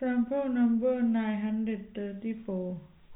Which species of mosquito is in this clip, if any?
no mosquito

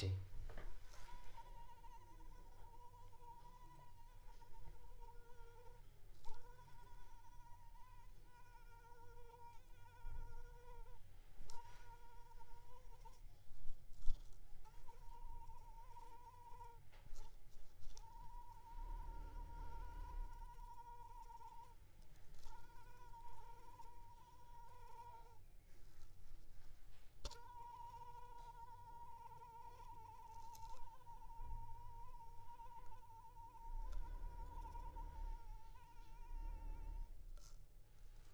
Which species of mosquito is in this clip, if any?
Anopheles arabiensis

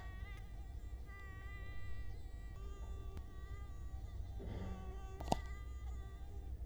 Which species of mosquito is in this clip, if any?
Culex quinquefasciatus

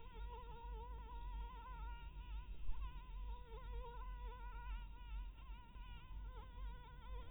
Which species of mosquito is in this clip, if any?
Anopheles maculatus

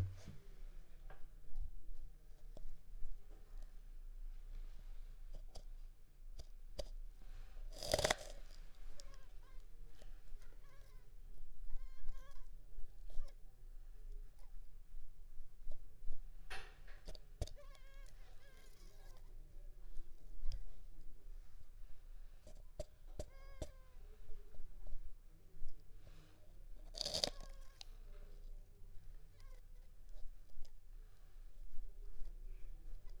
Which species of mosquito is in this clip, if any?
Culex pipiens complex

